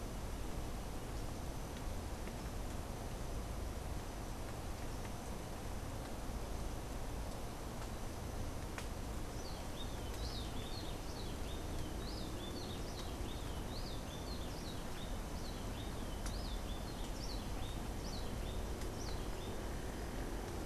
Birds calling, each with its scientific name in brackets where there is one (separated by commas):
Cabanis's Wren (Cantorchilus modestus)